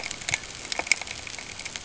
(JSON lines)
{"label": "ambient", "recorder": "HydroMoth"}